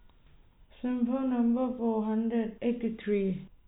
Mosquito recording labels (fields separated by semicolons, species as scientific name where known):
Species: no mosquito; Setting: cup